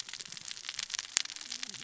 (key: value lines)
label: biophony, cascading saw
recorder: SoundTrap 600 or HydroMoth